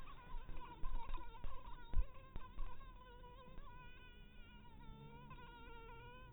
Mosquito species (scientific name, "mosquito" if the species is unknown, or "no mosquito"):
mosquito